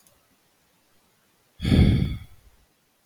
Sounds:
Sigh